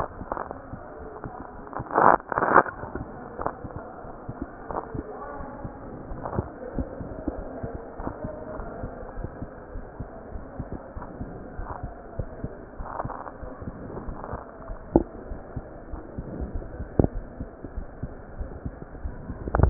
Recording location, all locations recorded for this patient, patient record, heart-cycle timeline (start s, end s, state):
aortic valve (AV)
aortic valve (AV)+pulmonary valve (PV)
#Age: nan
#Sex: Female
#Height: nan
#Weight: nan
#Pregnancy status: True
#Murmur: Absent
#Murmur locations: nan
#Most audible location: nan
#Systolic murmur timing: nan
#Systolic murmur shape: nan
#Systolic murmur grading: nan
#Systolic murmur pitch: nan
#Systolic murmur quality: nan
#Diastolic murmur timing: nan
#Diastolic murmur shape: nan
#Diastolic murmur grading: nan
#Diastolic murmur pitch: nan
#Diastolic murmur quality: nan
#Outcome: Normal
#Campaign: 2015 screening campaign
0.00	5.16	unannotated
5.16	5.24	S2
5.24	5.52	diastole
5.52	5.64	S1
5.64	5.78	systole
5.78	5.86	S2
5.86	6.10	diastole
6.10	6.22	S1
6.22	6.36	systole
6.36	6.48	S2
6.48	6.76	diastole
6.76	6.90	S1
6.90	6.98	systole
6.98	7.10	S2
7.10	7.36	diastole
7.36	7.48	S1
7.48	7.62	systole
7.62	7.72	S2
7.72	7.98	diastole
7.98	8.12	S1
8.12	8.22	systole
8.22	8.32	S2
8.32	8.56	diastole
8.56	8.68	S1
8.68	8.80	systole
8.80	8.92	S2
8.92	9.18	diastole
9.18	9.32	S1
9.32	9.40	systole
9.40	9.50	S2
9.50	9.74	diastole
9.74	9.86	S1
9.86	9.98	systole
9.98	10.08	S2
10.08	10.34	diastole
10.34	10.46	S1
10.46	10.58	systole
10.58	10.68	S2
10.68	10.94	diastole
10.94	11.06	S1
11.06	11.18	systole
11.18	11.30	S2
11.30	11.56	diastole
11.56	11.68	S1
11.68	11.82	systole
11.82	11.92	S2
11.92	12.16	diastole
12.16	12.28	S1
12.28	12.42	systole
12.42	12.52	S2
12.52	12.76	diastole
12.76	12.88	S1
12.88	13.02	systole
13.02	13.14	S2
13.14	13.40	diastole
13.40	13.52	S1
13.52	13.66	systole
13.66	13.76	S2
13.76	14.04	diastole
14.04	14.18	S1
14.18	14.30	systole
14.30	14.40	S2
14.40	14.66	diastole
14.66	14.78	S1
14.78	14.87	systole
14.87	19.70	unannotated